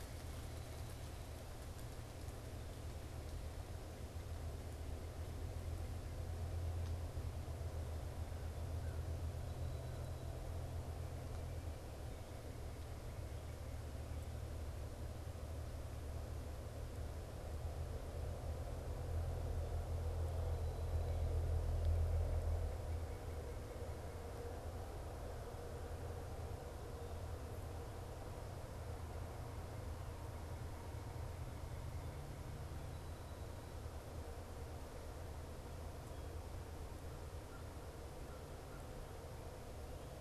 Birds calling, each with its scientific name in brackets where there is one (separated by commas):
American Crow (Corvus brachyrhynchos)